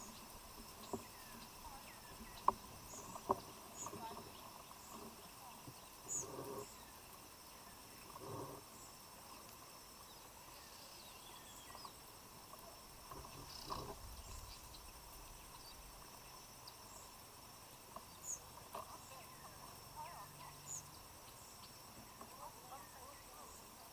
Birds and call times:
African Emerald Cuckoo (Chrysococcyx cupreus): 1.1s
White-eyed Slaty-Flycatcher (Melaenornis fischeri): 6.0s

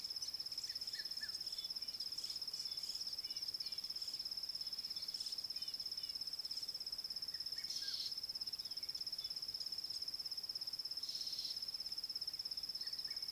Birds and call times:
Red-chested Cuckoo (Cuculus solitarius): 1.0s
Fork-tailed Drongo (Dicrurus adsimilis): 5.7s

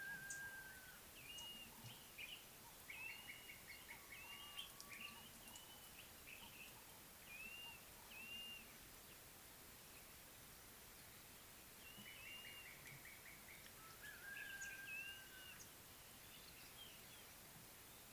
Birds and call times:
Slate-colored Boubou (Laniarius funebris): 3.8s
Blue-naped Mousebird (Urocolius macrourus): 15.3s

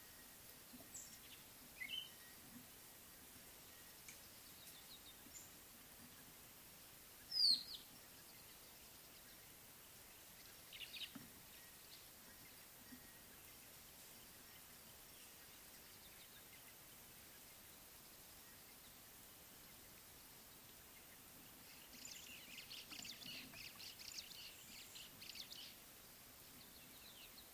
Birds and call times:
Mocking Cliff-Chat (Thamnolaea cinnamomeiventris): 2.0s, 7.5s
White-headed Buffalo-Weaver (Dinemellia dinemelli): 10.8s
White-browed Sparrow-Weaver (Plocepasser mahali): 23.0s, 25.2s

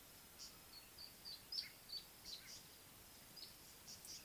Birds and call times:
Little Bee-eater (Merops pusillus): 1.6s

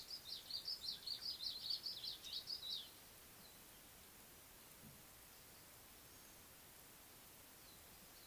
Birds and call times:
Red-faced Crombec (Sylvietta whytii): 1.5s

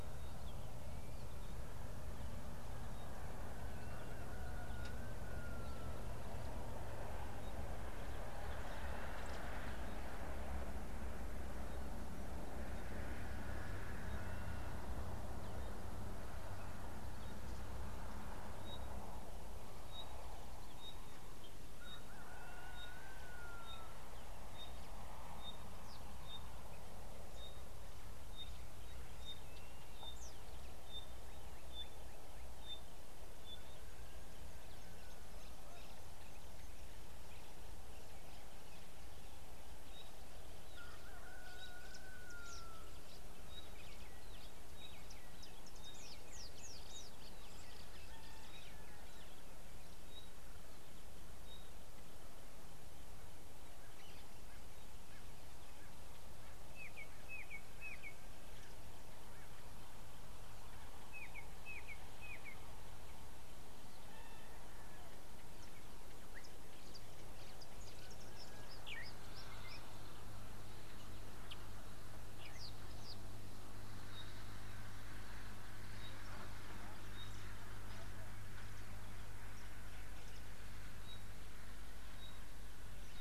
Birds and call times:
Pygmy Batis (Batis perkeo): 20.9s, 29.3s
Red-fronted Prinia (Prinia rufifrons): 30.2s, 46.4s, 72.6s
Spotted Morning-Thrush (Cichladusa guttata): 57.4s, 61.7s

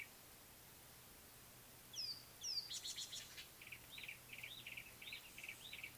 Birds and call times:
Rattling Cisticola (Cisticola chiniana): 2.5s
Yellow-breasted Apalis (Apalis flavida): 4.7s

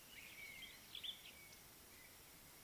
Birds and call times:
Blue-naped Mousebird (Urocolius macrourus): 0.4s

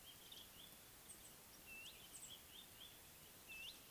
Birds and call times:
Red-backed Scrub-Robin (Cercotrichas leucophrys): 1.8s
Mouse-colored Penduline-Tit (Anthoscopus musculus): 2.2s

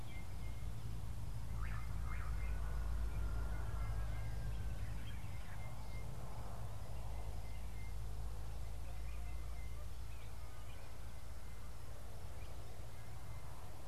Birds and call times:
Slate-colored Boubou (Laniarius funebris): 1.7s
Sulphur-breasted Bushshrike (Telophorus sulfureopectus): 7.4s

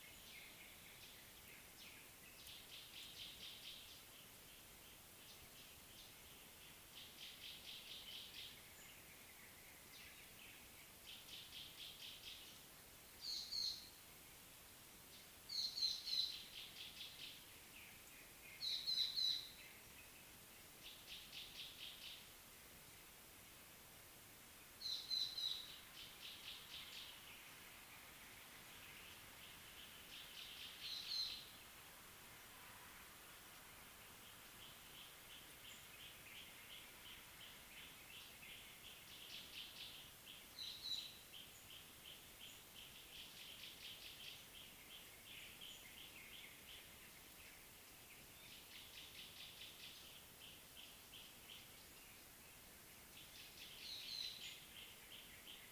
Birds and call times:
Gray-backed Camaroptera (Camaroptera brevicaudata): 3.2s, 21.7s, 49.4s
Black-collared Apalis (Oreolais pulcher): 13.4s, 18.9s, 25.3s
Gray Apalis (Apalis cinerea): 42.1s

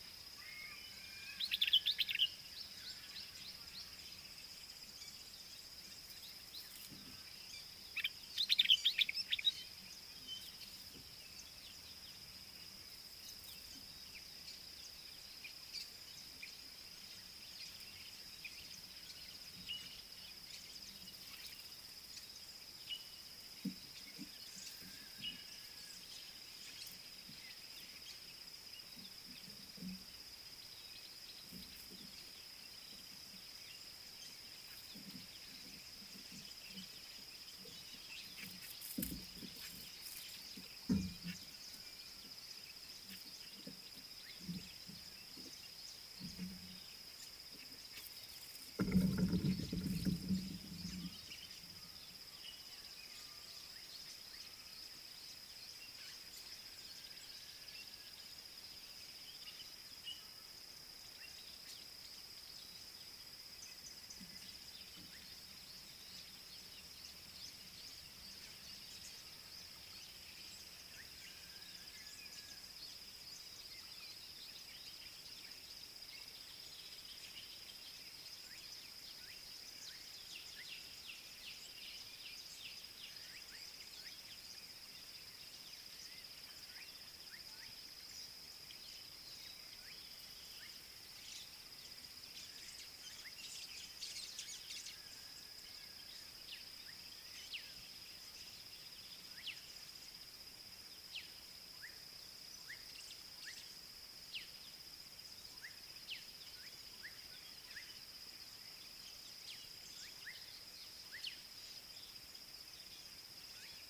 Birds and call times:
Common Bulbul (Pycnonotus barbatus): 1.7s, 8.6s
Black-backed Puffback (Dryoscopus cubla): 104.3s

